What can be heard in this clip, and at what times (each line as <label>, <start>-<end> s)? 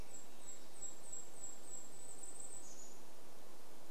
Golden-crowned Kinglet song, 0-4 s